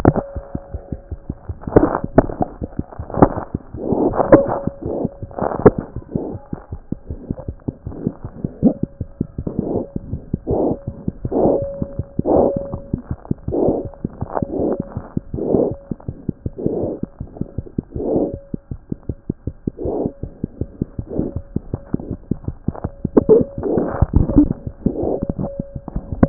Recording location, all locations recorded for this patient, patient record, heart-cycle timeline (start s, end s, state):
mitral valve (MV)
mitral valve (MV)
#Age: Infant
#Sex: Male
#Height: 60.0 cm
#Weight: 5.7 kg
#Pregnancy status: False
#Murmur: Absent
#Murmur locations: nan
#Most audible location: nan
#Systolic murmur timing: nan
#Systolic murmur shape: nan
#Systolic murmur grading: nan
#Systolic murmur pitch: nan
#Systolic murmur quality: nan
#Diastolic murmur timing: nan
#Diastolic murmur shape: nan
#Diastolic murmur grading: nan
#Diastolic murmur pitch: nan
#Diastolic murmur quality: nan
#Outcome: Normal
#Campaign: 2014 screening campaign
0.00	6.33	unannotated
6.33	6.41	S1
6.41	6.53	systole
6.53	6.58	S2
6.58	6.72	diastole
6.72	6.80	S1
6.80	6.92	systole
6.92	6.98	S2
6.98	7.12	diastole
7.12	7.20	S1
7.20	7.30	systole
7.30	7.37	S2
7.37	7.48	diastole
7.48	7.56	S1
7.56	7.68	systole
7.68	7.74	S2
7.74	7.87	diastole
7.87	7.94	S1
7.94	8.07	systole
8.07	8.12	S2
8.12	8.24	diastole
8.24	8.31	S1
8.31	8.44	systole
8.44	8.49	S2
8.49	8.63	diastole
8.63	26.29	unannotated